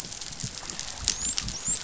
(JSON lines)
{"label": "biophony, dolphin", "recorder": "SoundTrap 500"}